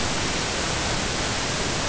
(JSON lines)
{"label": "ambient", "recorder": "HydroMoth"}